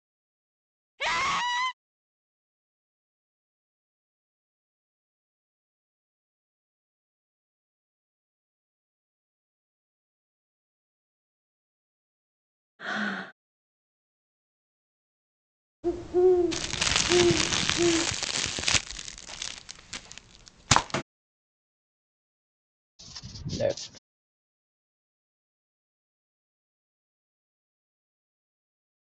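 At 0.98 seconds, someone screams. Later, at 12.79 seconds, breathing is heard. At 15.83 seconds, the sound of a bird begins. Over it, at 16.5 seconds, you can hear crumpling. Then, at 23.15 seconds, a voice says "left."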